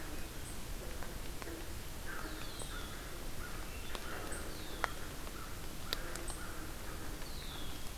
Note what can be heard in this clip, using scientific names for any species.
Corvus brachyrhynchos, Agelaius phoeniceus, Catharus ustulatus